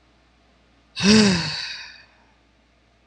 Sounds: Sigh